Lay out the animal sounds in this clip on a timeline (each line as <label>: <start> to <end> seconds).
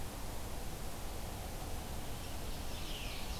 Ovenbird (Seiurus aurocapilla): 2.3 to 3.4 seconds
Veery (Catharus fuscescens): 2.8 to 3.3 seconds